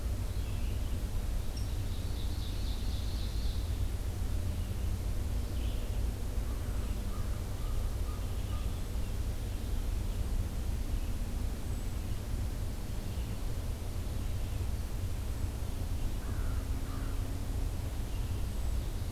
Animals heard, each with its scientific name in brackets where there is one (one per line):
Ovenbird (Seiurus aurocapilla)
Red-eyed Vireo (Vireo olivaceus)
Hermit Thrush (Catharus guttatus)
American Crow (Corvus brachyrhynchos)